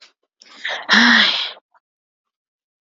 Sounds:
Sigh